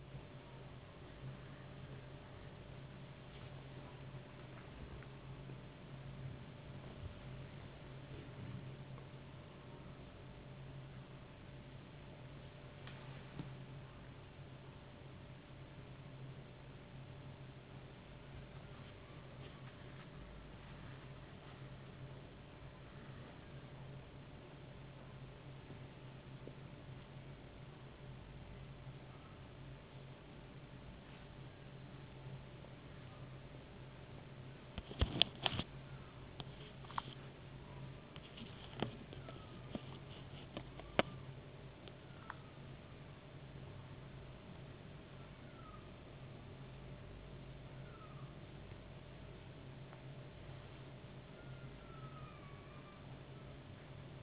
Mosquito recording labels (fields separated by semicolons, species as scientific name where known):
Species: no mosquito; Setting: insect culture